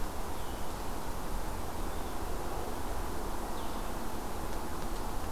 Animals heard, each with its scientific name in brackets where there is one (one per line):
Red-eyed Vireo (Vireo olivaceus)